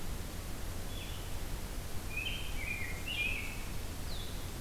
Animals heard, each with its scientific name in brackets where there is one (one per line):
Blue-headed Vireo (Vireo solitarius)
Rose-breasted Grosbeak (Pheucticus ludovicianus)